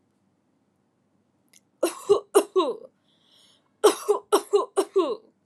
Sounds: Cough